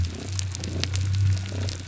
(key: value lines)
label: biophony
recorder: SoundTrap 300

label: biophony, damselfish
recorder: SoundTrap 300